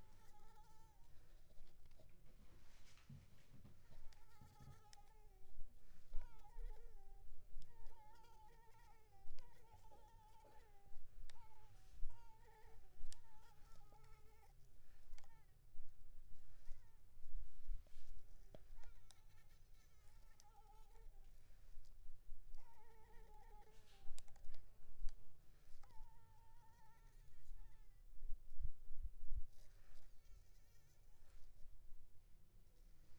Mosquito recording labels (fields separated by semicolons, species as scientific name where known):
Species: Culex pipiens complex; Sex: female; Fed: unfed; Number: one; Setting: cup